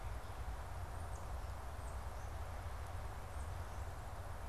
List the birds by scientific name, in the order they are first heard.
unidentified bird